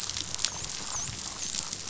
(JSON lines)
{"label": "biophony, dolphin", "recorder": "SoundTrap 500"}